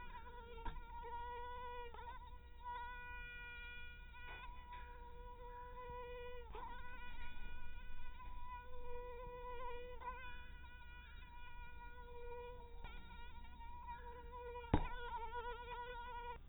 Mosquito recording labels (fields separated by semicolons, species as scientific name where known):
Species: mosquito; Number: one; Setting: cup